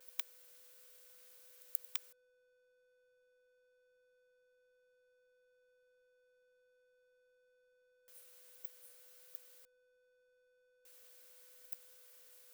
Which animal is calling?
Poecilimon hamatus, an orthopteran